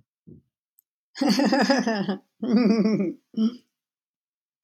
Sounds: Laughter